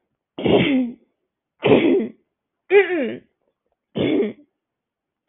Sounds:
Throat clearing